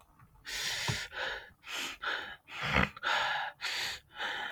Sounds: Sniff